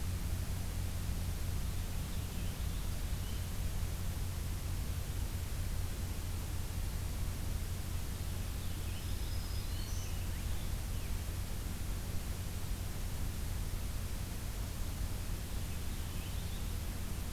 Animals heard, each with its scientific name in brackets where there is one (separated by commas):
Purple Finch (Haemorhous purpureus), Black-throated Green Warbler (Setophaga virens)